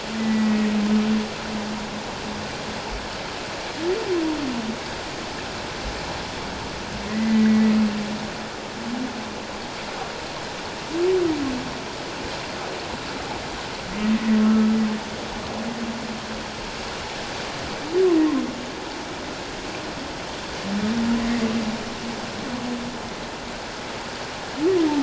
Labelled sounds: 0.2	0.7	humpback whale, 1.8 to 2.0 kHz
7.1	7.8	humpback whale, 1.7 to 2.1 kHz

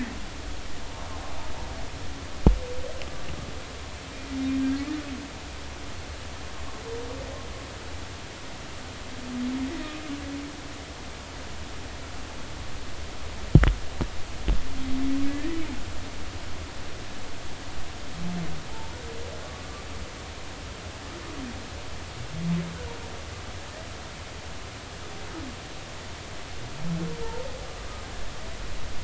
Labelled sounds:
15.3	15.5	humpback whale, 1.6 to 1.9 kHz

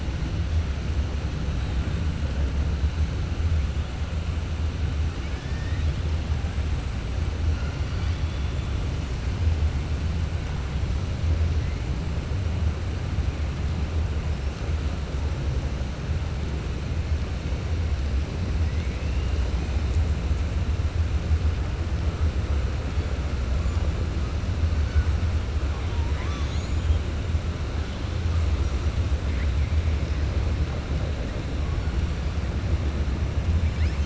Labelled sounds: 5.2	6.0	killer whale, 1.7 to 6.1 kHz

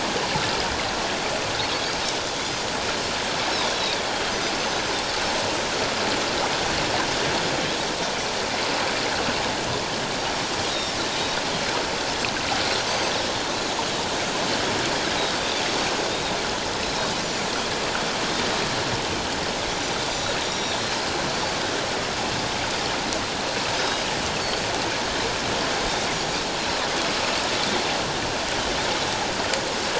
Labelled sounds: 4.6	4.9	Pacific white-sided dolphin, 6.1 to 6.3 kHz
10.7	11.0	Pacific white-sided dolphin, 3.6 to 5.7 kHz
12.9	13.1	Pacific white-sided dolphin, 4.5 to 6.3 kHz
16.1	16.4	Pacific white-sided dolphin, 3.6 to 3.9 kHz
20.5	21.0	Pacific white-sided dolphin, 3.7 to 5.8 kHz
21.3	21.6	Pacific white-sided dolphin, 4.4 to 4.6 kHz
23.7	24.0	Pacific white-sided dolphin, 4.9 to 5.2 kHz
26.1	26.4	Pacific white-sided dolphin, 6.6 to 7.0 kHz

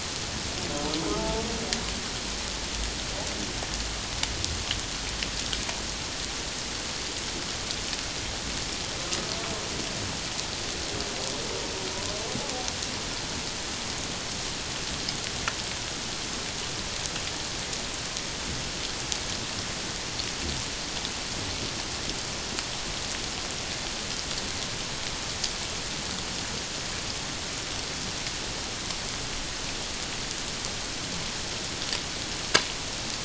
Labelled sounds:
1.1	1.4	humpback whale, 0.81 to 0.94 kHz

